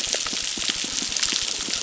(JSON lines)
{"label": "biophony, crackle", "recorder": "SoundTrap 600"}